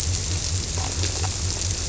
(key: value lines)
label: biophony
recorder: SoundTrap 300